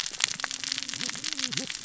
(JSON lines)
{"label": "biophony, cascading saw", "recorder": "SoundTrap 600 or HydroMoth"}